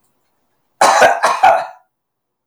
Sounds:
Cough